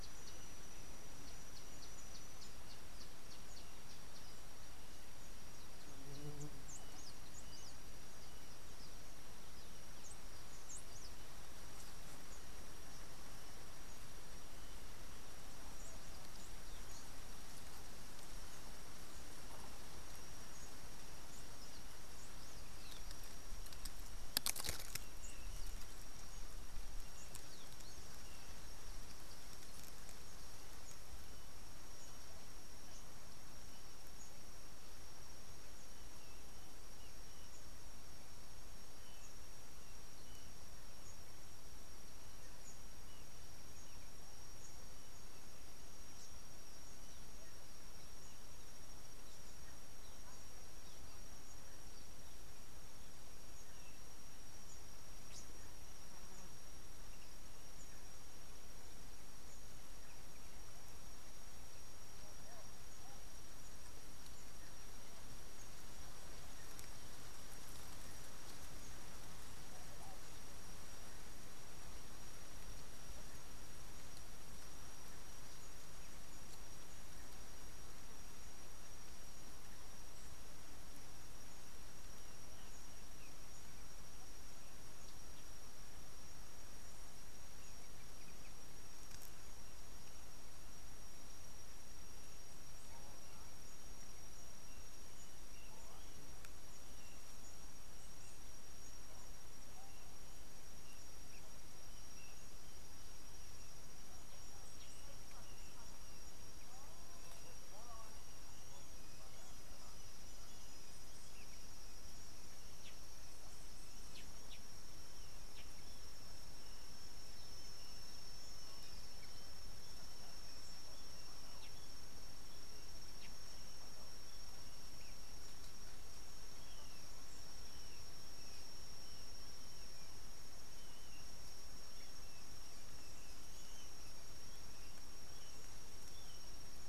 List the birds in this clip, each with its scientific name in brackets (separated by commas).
Kikuyu White-eye (Zosterops kikuyuensis)